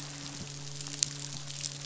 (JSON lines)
{"label": "biophony, midshipman", "recorder": "SoundTrap 500"}